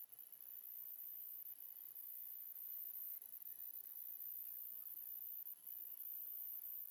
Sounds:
Sniff